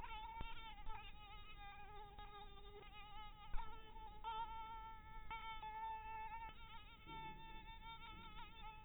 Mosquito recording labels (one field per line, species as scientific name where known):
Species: mosquito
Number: one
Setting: cup